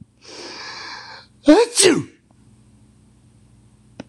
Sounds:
Sneeze